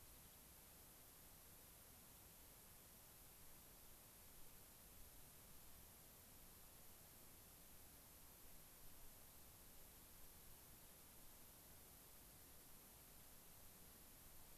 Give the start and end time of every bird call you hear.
0.0s-0.4s: unidentified bird

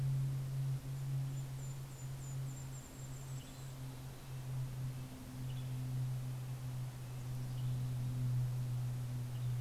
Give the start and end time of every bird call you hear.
0.5s-5.0s: Golden-crowned Kinglet (Regulus satrapa)
3.0s-4.4s: Mountain Chickadee (Poecile gambeli)
3.4s-9.6s: Western Tanager (Piranga ludoviciana)
4.1s-7.7s: Red-breasted Nuthatch (Sitta canadensis)
6.8s-8.6s: Mountain Chickadee (Poecile gambeli)

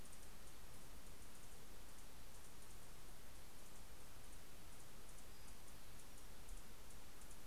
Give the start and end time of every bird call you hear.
0.0s-7.5s: Anna's Hummingbird (Calypte anna)
4.6s-6.8s: Pacific-slope Flycatcher (Empidonax difficilis)

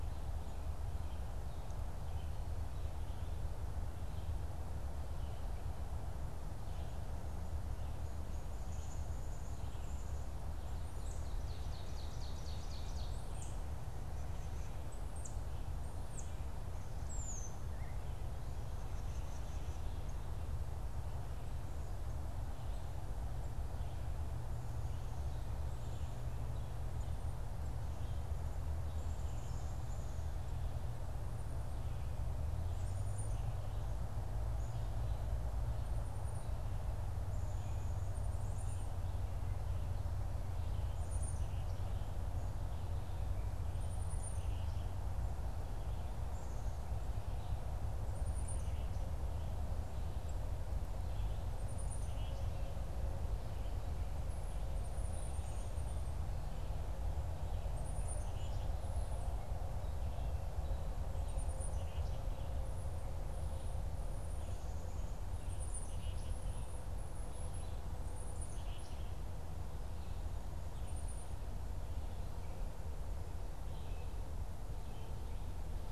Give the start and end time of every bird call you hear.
7.8s-10.4s: Black-capped Chickadee (Poecile atricapillus)
10.8s-11.4s: Tufted Titmouse (Baeolophus bicolor)
10.9s-13.5s: Ovenbird (Seiurus aurocapilla)
13.2s-20.5s: Tufted Titmouse (Baeolophus bicolor)
26.9s-72.3s: Black-capped Chickadee (Poecile atricapillus)

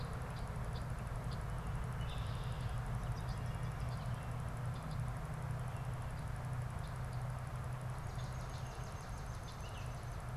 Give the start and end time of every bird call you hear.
0.0s-5.1s: Red-winged Blackbird (Agelaius phoeniceus)
7.5s-10.3s: Swamp Sparrow (Melospiza georgiana)
9.4s-9.9s: Baltimore Oriole (Icterus galbula)

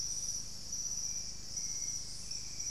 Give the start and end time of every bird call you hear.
0.8s-2.7s: Hauxwell's Thrush (Turdus hauxwelli)

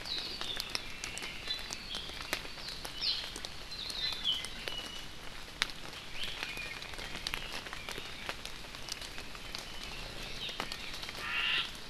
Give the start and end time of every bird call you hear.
0.0s-0.4s: Hawaii Akepa (Loxops coccineus)
0.1s-1.9s: Red-billed Leiothrix (Leiothrix lutea)
1.4s-1.7s: Iiwi (Drepanis coccinea)
3.7s-4.4s: Hawaii Akepa (Loxops coccineus)
4.6s-5.1s: Iiwi (Drepanis coccinea)
6.4s-6.8s: Iiwi (Drepanis coccinea)
11.1s-11.7s: Omao (Myadestes obscurus)

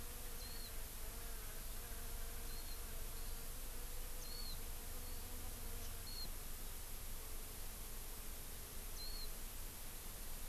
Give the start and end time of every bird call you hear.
0.4s-0.7s: Warbling White-eye (Zosterops japonicus)
2.5s-2.7s: Warbling White-eye (Zosterops japonicus)
4.2s-4.5s: Warbling White-eye (Zosterops japonicus)
6.0s-6.3s: Warbling White-eye (Zosterops japonicus)
8.9s-9.3s: Warbling White-eye (Zosterops japonicus)

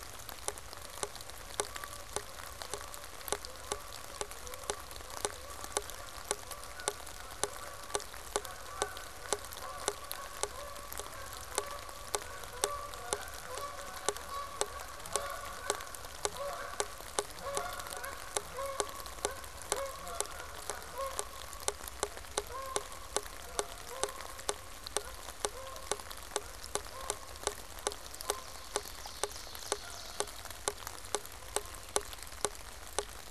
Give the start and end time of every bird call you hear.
8.8s-31.6s: Canada Goose (Branta canadensis)
27.8s-30.7s: Ovenbird (Seiurus aurocapilla)

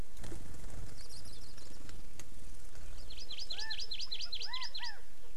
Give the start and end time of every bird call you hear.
2.9s-4.9s: Hawaii Amakihi (Chlorodrepanis virens)
3.4s-3.7s: California Quail (Callipepla californica)
4.2s-5.0s: California Quail (Callipepla californica)

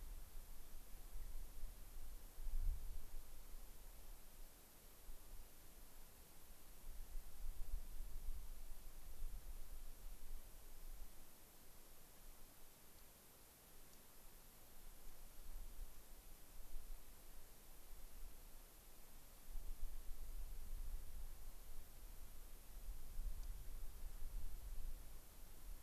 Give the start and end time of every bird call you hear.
13.9s-14.0s: unidentified bird
23.4s-23.5s: unidentified bird

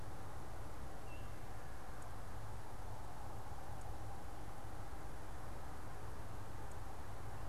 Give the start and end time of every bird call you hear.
1.0s-1.3s: Veery (Catharus fuscescens)

